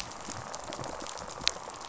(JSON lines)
{"label": "biophony, rattle response", "recorder": "SoundTrap 500"}